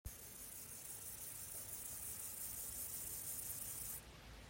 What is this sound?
Gomphocerippus rufus, an orthopteran